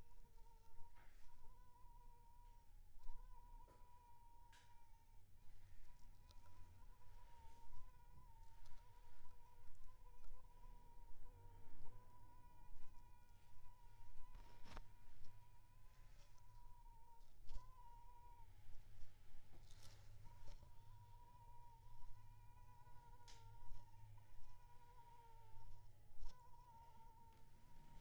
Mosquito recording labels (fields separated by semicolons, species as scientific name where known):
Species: Anopheles funestus s.s.; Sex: female; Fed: unfed; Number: one; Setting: cup